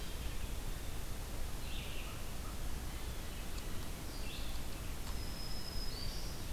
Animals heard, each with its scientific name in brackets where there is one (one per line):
Black-throated Green Warbler (Setophaga virens)
Red-eyed Vireo (Vireo olivaceus)